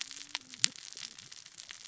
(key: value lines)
label: biophony, cascading saw
recorder: SoundTrap 600 or HydroMoth